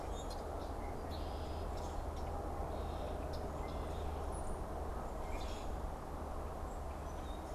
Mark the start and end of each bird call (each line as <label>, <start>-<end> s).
Common Grackle (Quiscalus quiscula), 0.0-0.6 s
Red-winged Blackbird (Agelaius phoeniceus), 0.0-7.5 s
unidentified bird, 4.2-4.7 s
Common Grackle (Quiscalus quiscula), 4.9-6.1 s